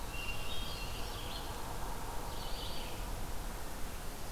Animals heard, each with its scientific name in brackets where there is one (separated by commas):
Black-throated Blue Warbler (Setophaga caerulescens), Red-eyed Vireo (Vireo olivaceus), Hermit Thrush (Catharus guttatus)